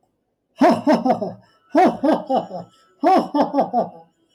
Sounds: Laughter